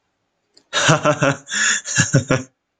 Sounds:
Laughter